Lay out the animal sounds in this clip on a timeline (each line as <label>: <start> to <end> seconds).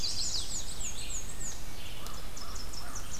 Chestnut-sided Warbler (Setophaga pensylvanica): 0.0 to 0.7 seconds
Black-and-white Warbler (Mniotilta varia): 0.0 to 1.8 seconds
Red-eyed Vireo (Vireo olivaceus): 0.0 to 3.2 seconds
American Crow (Corvus brachyrhynchos): 2.0 to 3.2 seconds
Tennessee Warbler (Leiothlypis peregrina): 2.0 to 3.2 seconds